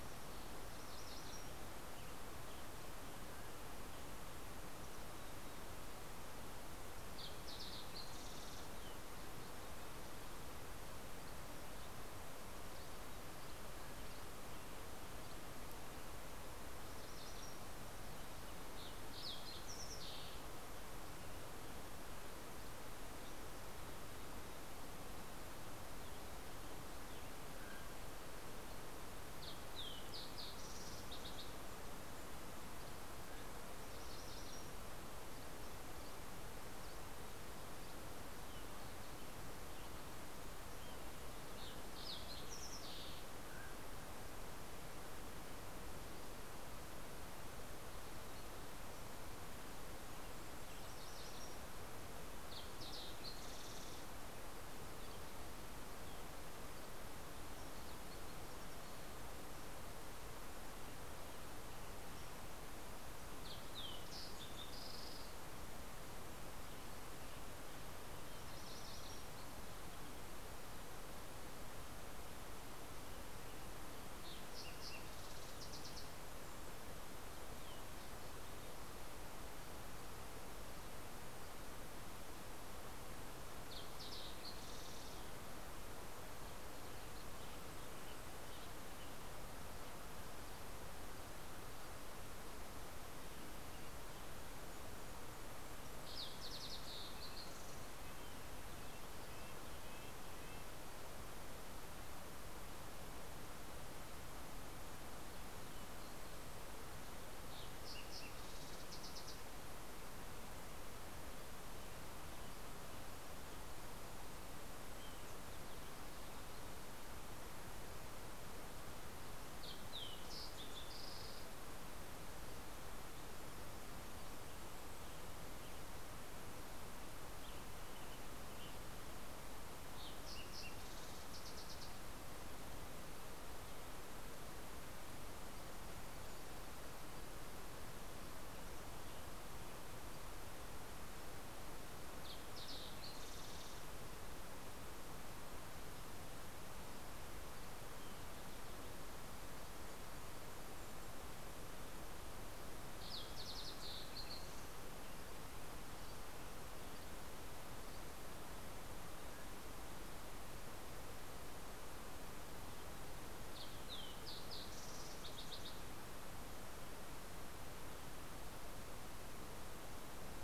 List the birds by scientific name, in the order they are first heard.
Geothlypis tolmiei, Piranga ludoviciana, Oreortyx pictus, Passerella iliaca, Empidonax oberholseri, Regulus satrapa, Sitta canadensis